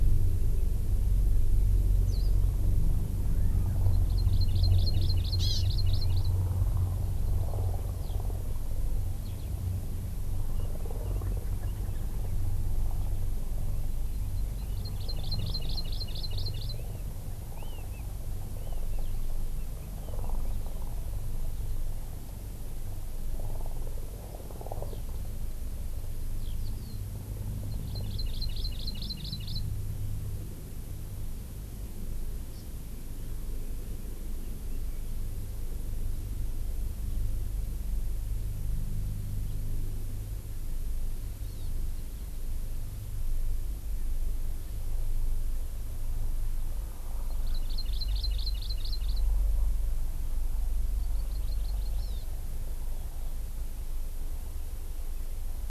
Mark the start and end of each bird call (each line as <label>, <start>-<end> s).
Hawaii Amakihi (Chlorodrepanis virens), 3.9-6.4 s
Eurasian Skylark (Alauda arvensis), 8.0-8.2 s
Eurasian Skylark (Alauda arvensis), 9.2-9.5 s
Red-billed Leiothrix (Leiothrix lutea), 10.5-12.3 s
Hawaii Amakihi (Chlorodrepanis virens), 13.9-16.8 s
Eurasian Skylark (Alauda arvensis), 24.9-25.0 s
Eurasian Skylark (Alauda arvensis), 26.4-26.5 s
Hawaii Amakihi (Chlorodrepanis virens), 27.8-29.6 s
Hawaii Amakihi (Chlorodrepanis virens), 32.5-32.6 s
Hawaii Amakihi (Chlorodrepanis virens), 41.4-41.7 s
Hawaii Amakihi (Chlorodrepanis virens), 47.4-49.2 s
Hawaii Amakihi (Chlorodrepanis virens), 51.0-52.3 s